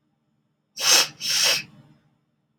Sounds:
Sniff